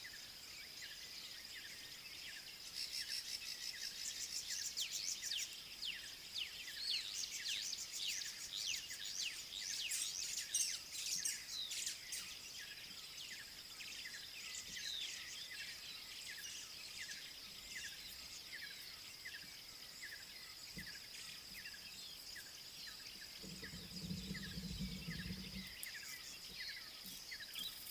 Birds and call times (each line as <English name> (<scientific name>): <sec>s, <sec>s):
Cardinal Woodpecker (Chloropicus fuscescens): 3.3s
Tawny-flanked Prinia (Prinia subflava): 4.6s, 7.7s
Black-backed Puffback (Dryoscopus cubla): 5.9s
White-browed Sparrow-Weaver (Plocepasser mahali): 10.7s